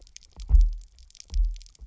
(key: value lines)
label: biophony, double pulse
recorder: SoundTrap 300